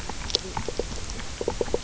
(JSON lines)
{"label": "biophony, knock croak", "recorder": "SoundTrap 300"}